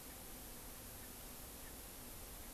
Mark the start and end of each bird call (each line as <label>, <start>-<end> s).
Erckel's Francolin (Pternistis erckelii), 0.0-1.8 s